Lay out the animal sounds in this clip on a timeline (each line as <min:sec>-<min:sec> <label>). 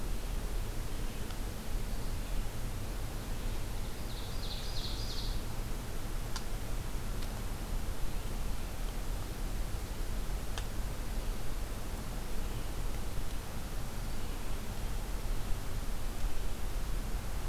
0:03.7-0:05.4 Ovenbird (Seiurus aurocapilla)